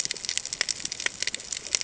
{"label": "ambient", "recorder": "HydroMoth"}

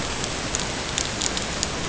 {"label": "ambient", "recorder": "HydroMoth"}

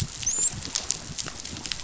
{"label": "biophony, dolphin", "recorder": "SoundTrap 500"}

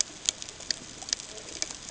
{"label": "ambient", "recorder": "HydroMoth"}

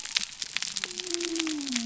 {"label": "biophony", "recorder": "SoundTrap 300"}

